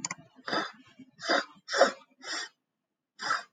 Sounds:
Sniff